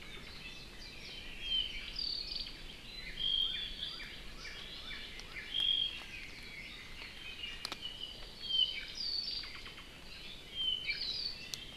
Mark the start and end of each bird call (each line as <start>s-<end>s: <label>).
0.0s-2.6s: Apapane (Himatione sanguinea)
2.9s-5.5s: Northern Cardinal (Cardinalis cardinalis)
3.1s-3.7s: Omao (Myadestes obscurus)
5.4s-6.0s: Omao (Myadestes obscurus)
7.1s-9.6s: Apapane (Himatione sanguinea)
10.4s-11.4s: Apapane (Himatione sanguinea)